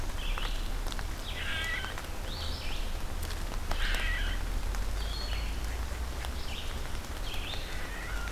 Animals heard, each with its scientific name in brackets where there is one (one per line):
unknown mammal
Red-eyed Vireo (Vireo olivaceus)